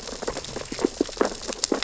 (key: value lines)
label: biophony, sea urchins (Echinidae)
recorder: SoundTrap 600 or HydroMoth